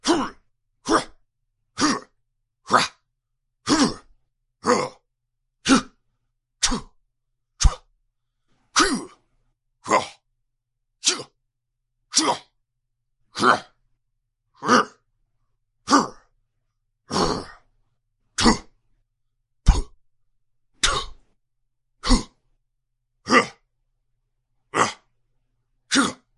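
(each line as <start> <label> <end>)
0.0 A man grunts violently and repeatedly. 26.4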